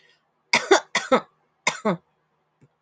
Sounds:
Cough